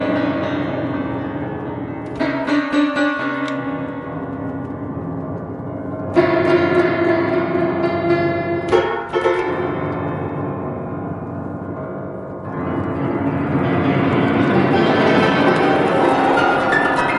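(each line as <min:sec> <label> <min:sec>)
0:00.0 A piano plays an unsettling, unrhythmic, and creepy melody that gradually shifts to a disturbing deep sound at the end. 0:17.2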